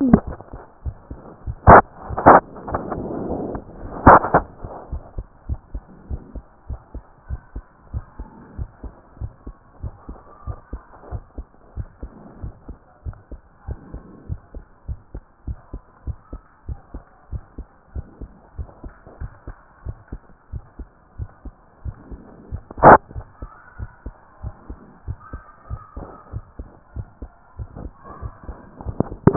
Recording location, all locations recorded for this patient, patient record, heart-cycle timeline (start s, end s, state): tricuspid valve (TV)
aortic valve (AV)+pulmonary valve (PV)+tricuspid valve (TV)+mitral valve (MV)
#Age: Child
#Sex: Male
#Height: 142.0 cm
#Weight: 36.2 kg
#Pregnancy status: False
#Murmur: Absent
#Murmur locations: nan
#Most audible location: nan
#Systolic murmur timing: nan
#Systolic murmur shape: nan
#Systolic murmur grading: nan
#Systolic murmur pitch: nan
#Systolic murmur quality: nan
#Diastolic murmur timing: nan
#Diastolic murmur shape: nan
#Diastolic murmur grading: nan
#Diastolic murmur pitch: nan
#Diastolic murmur quality: nan
#Outcome: Abnormal
#Campaign: 2014 screening campaign
0.00	4.75	unannotated
4.75	4.90	diastole
4.90	5.02	S1
5.02	5.16	systole
5.16	5.26	S2
5.26	5.48	diastole
5.48	5.60	S1
5.60	5.72	systole
5.72	5.82	S2
5.82	6.08	diastole
6.08	6.22	S1
6.22	6.34	systole
6.34	6.44	S2
6.44	6.68	diastole
6.68	6.80	S1
6.80	6.94	systole
6.94	7.04	S2
7.04	7.28	diastole
7.28	7.40	S1
7.40	7.54	systole
7.54	7.64	S2
7.64	7.92	diastole
7.92	8.04	S1
8.04	8.18	systole
8.18	8.28	S2
8.28	8.58	diastole
8.58	8.68	S1
8.68	8.84	systole
8.84	8.92	S2
8.92	9.20	diastole
9.20	9.32	S1
9.32	9.46	systole
9.46	9.56	S2
9.56	9.82	diastole
9.82	9.94	S1
9.94	10.08	systole
10.08	10.18	S2
10.18	10.46	diastole
10.46	10.58	S1
10.58	10.72	systole
10.72	10.82	S2
10.82	11.12	diastole
11.12	11.22	S1
11.22	11.36	systole
11.36	11.46	S2
11.46	11.76	diastole
11.76	11.88	S1
11.88	12.02	systole
12.02	12.12	S2
12.12	12.42	diastole
12.42	12.54	S1
12.54	12.68	systole
12.68	12.78	S2
12.78	13.04	diastole
13.04	13.16	S1
13.16	13.30	systole
13.30	13.40	S2
13.40	13.66	diastole
13.66	13.78	S1
13.78	13.92	systole
13.92	14.02	S2
14.02	14.28	diastole
14.28	14.40	S1
14.40	14.54	systole
14.54	14.64	S2
14.64	14.88	diastole
14.88	15.00	S1
15.00	15.14	systole
15.14	15.22	S2
15.22	15.46	diastole
15.46	15.58	S1
15.58	15.72	systole
15.72	15.82	S2
15.82	16.06	diastole
16.06	16.18	S1
16.18	16.32	systole
16.32	16.42	S2
16.42	16.68	diastole
16.68	16.78	S1
16.78	16.94	systole
16.94	17.04	S2
17.04	17.32	diastole
17.32	17.42	S1
17.42	17.58	systole
17.58	17.66	S2
17.66	17.94	diastole
17.94	18.06	S1
18.06	18.20	systole
18.20	18.30	S2
18.30	18.58	diastole
18.58	18.68	S1
18.68	18.84	systole
18.84	18.94	S2
18.94	19.20	diastole
19.20	19.32	S1
19.32	19.46	systole
19.46	19.56	S2
19.56	19.86	diastole
19.86	19.96	S1
19.96	20.12	systole
20.12	20.22	S2
20.22	20.52	diastole
20.52	20.64	S1
20.64	20.78	systole
20.78	20.88	S2
20.88	21.18	diastole
21.18	21.30	S1
21.30	21.44	systole
21.44	21.54	S2
21.54	21.84	diastole
21.84	21.96	S1
21.96	22.10	systole
22.10	22.20	S2
22.20	22.51	diastole
22.51	29.36	unannotated